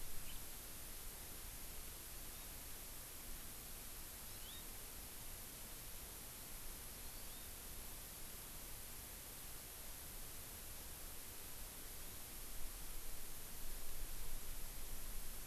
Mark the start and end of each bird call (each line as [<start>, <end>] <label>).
[0.28, 0.38] House Finch (Haemorhous mexicanus)
[2.08, 2.58] Hawaii Amakihi (Chlorodrepanis virens)
[4.18, 4.68] Hawaii Amakihi (Chlorodrepanis virens)
[6.98, 7.48] Hawaii Amakihi (Chlorodrepanis virens)